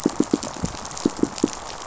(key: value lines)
label: biophony, pulse
recorder: SoundTrap 500